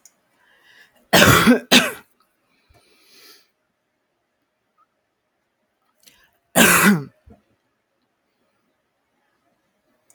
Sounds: Cough